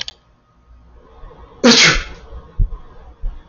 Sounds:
Sneeze